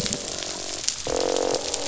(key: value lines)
label: biophony, croak
recorder: SoundTrap 500